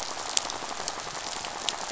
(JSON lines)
{"label": "biophony, rattle", "recorder": "SoundTrap 500"}